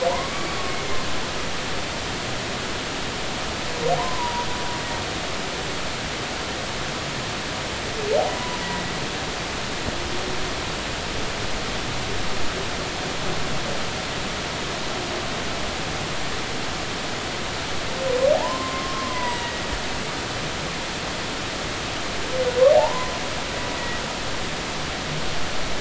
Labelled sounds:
0.1	0.5	humpback whale, 0.83 to 2.3 kHz
4.0	4.5	humpback whale, 0.90 to 1.1 kHz
8.3	8.9	humpback whale, 0.93 to 2.0 kHz
18.3	19.6	humpback whale, 0.80 to 2.1 kHz
22.7	23.1	humpback whale, 0.80 to 1.1 kHz

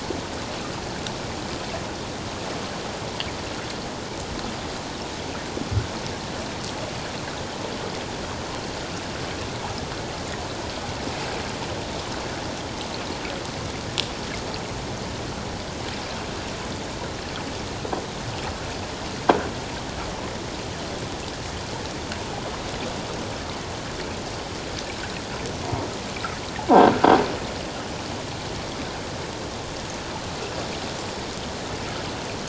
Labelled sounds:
25.6	25.9	croaking sound likely from a nearby submerged object, 0.88 to 1.1 kHz

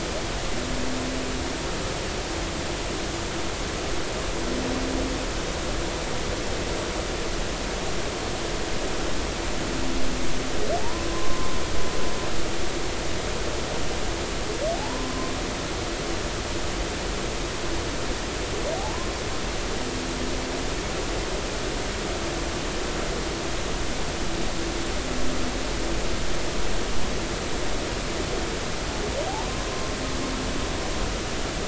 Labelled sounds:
10.8	11.5	humpback whale, 0.83 to 1.1 kHz
14.7	15.3	humpback whale, 0.80 to 1.1 kHz
18.8	19.1	humpback whale, 0.80 to 1.1 kHz
29.3	29.7	humpback whale, 0.80 to 1.1 kHz

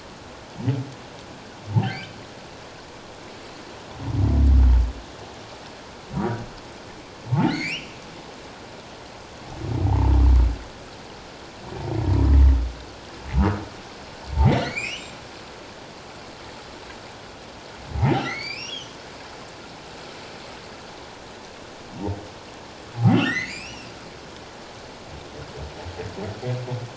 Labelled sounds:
1.7	2.2	humpback whale, 0.78 to 5.0 kHz
7.5	8.0	humpback whale, 1.8 to 4.6 kHz
9.8	10.2	humpback whale, 0.78 to 1.1 kHz
14.4	15.2	humpback whale, 1.8 to 7.6 kHz
18.2	19.0	humpback whale, 1.8 to 6.0 kHz
23.1	23.9	humpback whale, 1.6 to 6.8 kHz

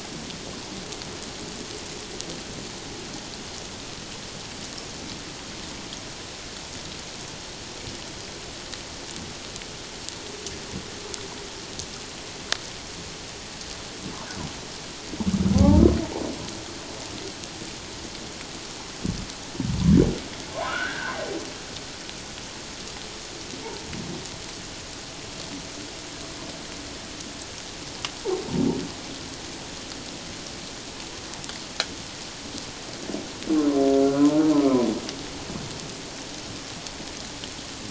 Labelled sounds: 15.5	15.8	humpback whale, 0.78 to 0.97 kHz
20.7	21.1	humpback whale, 1.2 to 1.7 kHz

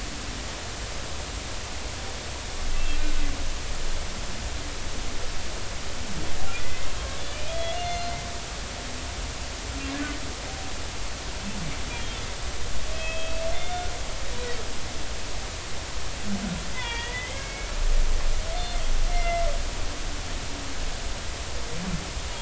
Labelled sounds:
2.7	3.0	humpback whale, 2.6 to 2.8 kHz
6.6	8.1	humpback whale, 1.9 to 6.4 kHz
11.9	12.2	humpback whale, 3.1 to 3.4 kHz
12.9	13.9	humpback whale, 1.4 to 3.6 kHz
16.7	17.7	humpback whale, 0.83 to 3.6 kHz
19.1	19.5	humpback whale, 2.0 to 2.2 kHz

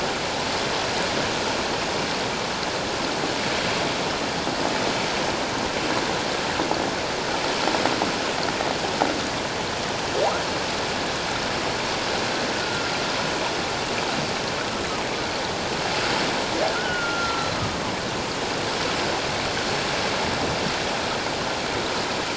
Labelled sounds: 12.6	12.9	humpback whale, 1.3 to 1.5 kHz
16.7	17.5	humpback whale, 1.3 to 1.6 kHz

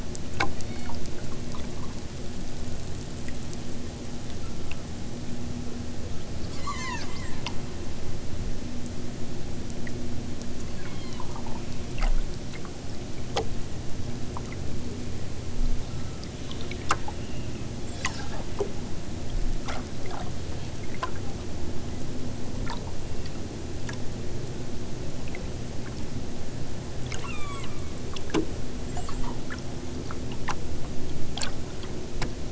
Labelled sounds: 0.6	1.1	killer whale, southern Alaska resident, 1.7 to 4.7 kHz
4.4	4.9	killer whale, southern Alaska resident, 1.0 to 1.8 kHz
6.4	7.5	killer whale, southern Alaska resident, 0.64 to 8.0 kHz
10.8	11.3	killer whale, southern Alaska resident, 0.69 to 5.0 kHz
15.8	16.3	killer whale, southern Alaska resident, 0.97 to 6.0 kHz
27.2	27.8	killer whale, southern Alaska resident, 0.60 to 8.0 kHz

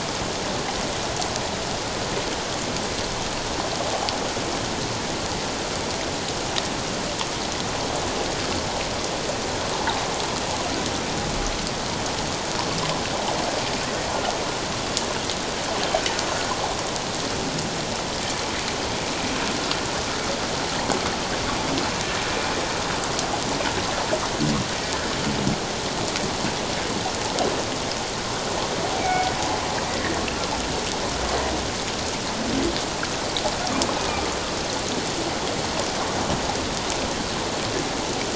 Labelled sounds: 29.0	29.3	humpback whale, 2.2 to 2.4 kHz
29.9	30.2	humpback whale, 1.7 to 2.1 kHz
34.0	34.3	humpback whale, 1.16 to 1.25 kHz

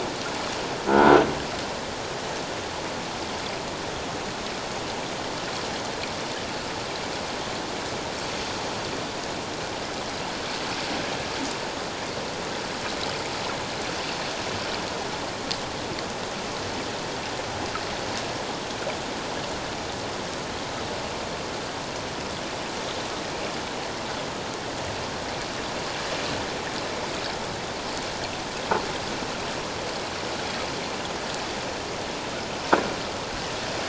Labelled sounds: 0.9	1.1	croaking sound likely from a nearby submerged object, 1.3 to 1.6 kHz

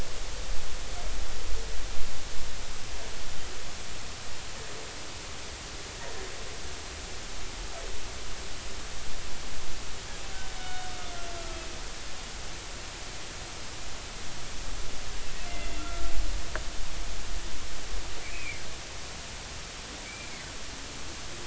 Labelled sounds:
10.6	11.0	humpback whale, 1.3 to 3.7 kHz
15.5	16.1	humpback whale, 1.3 to 2.8 kHz
18.2	18.6	humpback whale, 2.1 to 2.7 kHz
20.0	20.3	humpback whale, 2.2 to 2.4 kHz

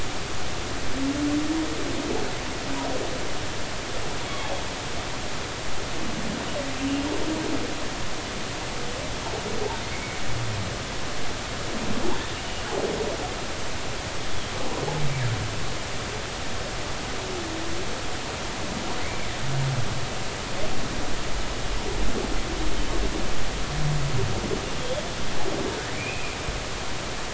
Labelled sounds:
4.3	4.5	humpback whale, 3.2 to 3.4 kHz
9.8	10.2	humpback whale, 2.0 to 2.3 kHz
24.8	25.0	humpback whale, 3.1 to 3.6 kHz
25.9	26.4	humpback whale, 2.2 to 2.7 kHz

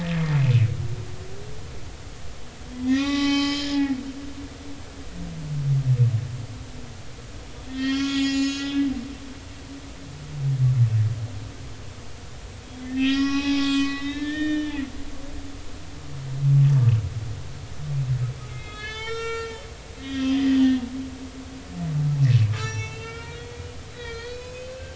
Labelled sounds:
2.7	3.8	humpback whale, 0.80 to 6.0 kHz
7.7	8.9	humpback whale, 1.0 to 6.9 kHz
12.6	14.8	humpback whale, 0.80 to 7.6 kHz
18.5	19.7	humpback whale, 0.90 to 7.4 kHz
20.0	20.9	humpback whale, 1.8 to 3.8 kHz
22.6	23.6	humpback whale, 0.83 to 7.6 kHz
23.9	24.9	humpback whale, 1.3 to 6.7 kHz

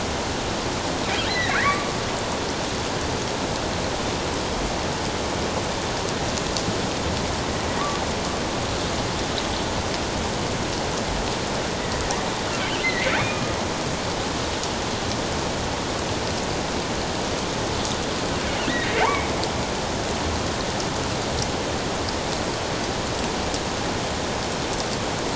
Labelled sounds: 1.2	1.9	killer whale, offshore, 1.1 to 4.2 kHz
12.6	13.6	killer whale, offshore, 1.1 to 3.2 kHz
18.7	19.3	killer whale, offshore, 1.8 to 2.3 kHz

